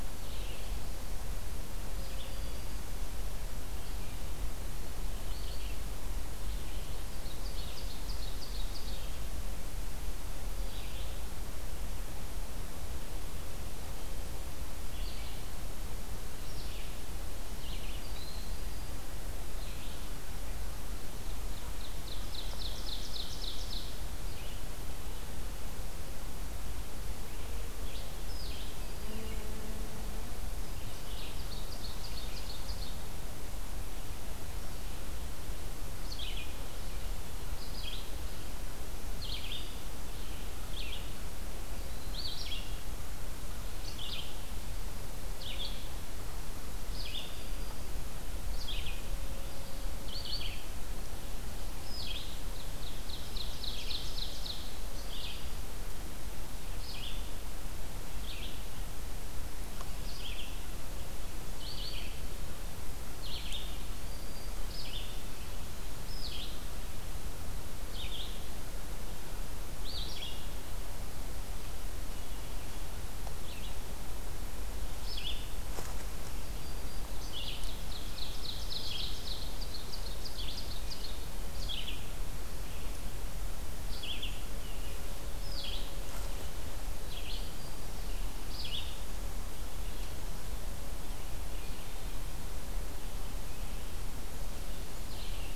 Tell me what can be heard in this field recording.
Red-eyed Vireo, Ovenbird